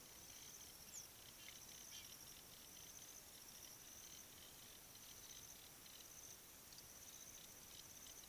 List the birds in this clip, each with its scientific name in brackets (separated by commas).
African Jacana (Actophilornis africanus)